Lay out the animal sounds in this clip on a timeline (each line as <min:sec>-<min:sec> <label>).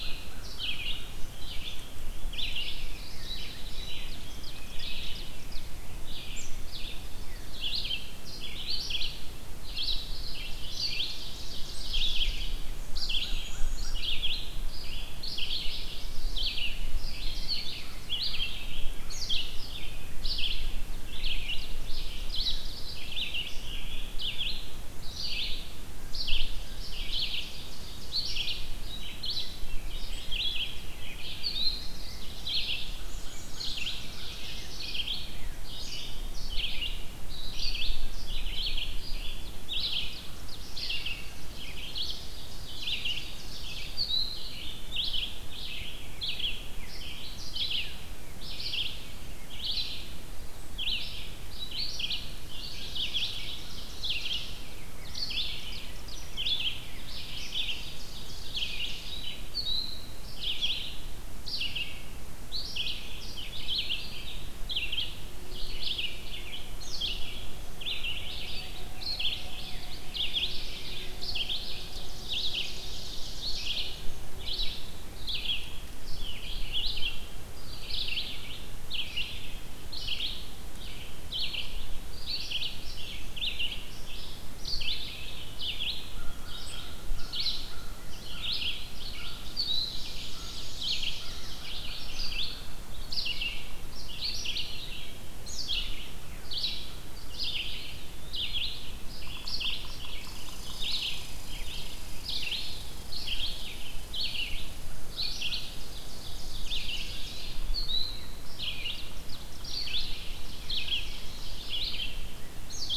0:00.0-0:01.2 American Crow (Corvus brachyrhynchos)
0:00.0-0:50.1 Red-eyed Vireo (Vireo olivaceus)
0:03.5-0:05.7 Ovenbird (Seiurus aurocapilla)
0:06.8-0:07.9 Chestnut-sided Warbler (Setophaga pensylvanica)
0:10.3-0:12.7 Ovenbird (Seiurus aurocapilla)
0:12.6-0:14.1 Black-and-white Warbler (Mniotilta varia)
0:17.2-0:18.2 Chestnut-sided Warbler (Setophaga pensylvanica)
0:20.9-0:22.8 Ovenbird (Seiurus aurocapilla)
0:26.1-0:28.5 Ovenbird (Seiurus aurocapilla)
0:29.5-0:35.6 Rose-breasted Grosbeak (Pheucticus ludovicianus)
0:30.0-0:31.0 Chestnut-sided Warbler (Setophaga pensylvanica)
0:32.5-0:35.2 Ovenbird (Seiurus aurocapilla)
0:33.0-0:34.1 Black-and-white Warbler (Mniotilta varia)
0:39.3-0:43.9 Ovenbird (Seiurus aurocapilla)
0:50.5-1:49.0 Red-eyed Vireo (Vireo olivaceus)
0:52.4-0:54.7 Ovenbird (Seiurus aurocapilla)
0:54.2-0:59.4 Rose-breasted Grosbeak (Pheucticus ludovicianus)
0:55.3-0:59.3 Ovenbird (Seiurus aurocapilla)
1:11.3-1:14.0 Ovenbird (Seiurus aurocapilla)
1:26.0-1:32.7 American Crow (Corvus brachyrhynchos)
1:28.8-1:32.0 Ovenbird (Seiurus aurocapilla)
1:29.8-1:31.3 Black-and-white Warbler (Mniotilta varia)
1:37.7-1:38.6 Eastern Wood-Pewee (Contopus virens)
1:40.2-1:47.9 Red Squirrel (Tamiasciurus hudsonicus)
1:45.3-1:47.7 Ovenbird (Seiurus aurocapilla)
1:46.6-1:47.6 Eastern Wood-Pewee (Contopus virens)
1:48.6-1:51.8 Ovenbird (Seiurus aurocapilla)
1:49.5-1:53.0 Red-eyed Vireo (Vireo olivaceus)